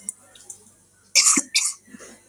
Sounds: Cough